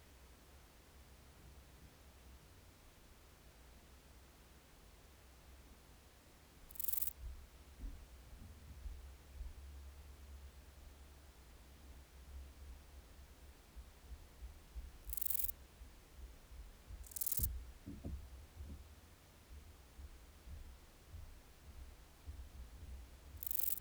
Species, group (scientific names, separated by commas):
Euthystira brachyptera, Orthoptera